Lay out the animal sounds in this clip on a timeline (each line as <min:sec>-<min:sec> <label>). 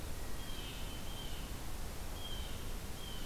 0:00.3-0:03.3 Blue Jay (Cyanocitta cristata)